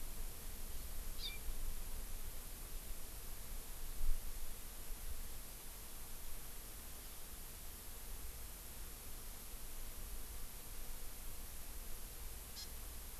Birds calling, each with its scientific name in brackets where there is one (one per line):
Hawaii Amakihi (Chlorodrepanis virens)